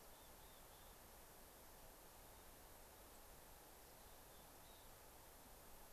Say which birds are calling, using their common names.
Mountain Chickadee